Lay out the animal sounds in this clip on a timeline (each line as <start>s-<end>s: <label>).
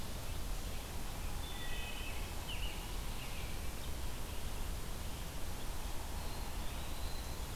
1.1s-2.3s: Wood Thrush (Hylocichla mustelina)
2.4s-4.2s: American Robin (Turdus migratorius)
5.9s-7.6s: Eastern Wood-Pewee (Contopus virens)